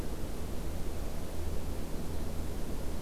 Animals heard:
forest ambience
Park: Acadia National Park